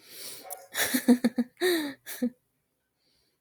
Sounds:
Laughter